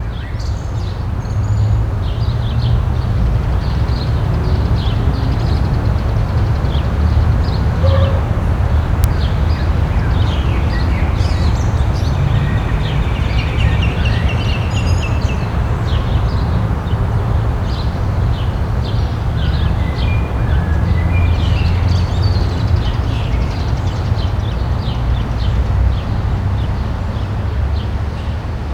Is there more than one type of bird singing?
yes